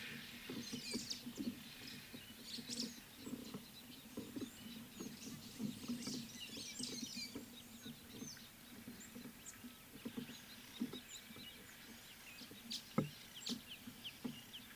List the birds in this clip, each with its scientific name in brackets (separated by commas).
White-headed Buffalo-Weaver (Dinemellia dinemelli), White-browed Sparrow-Weaver (Plocepasser mahali)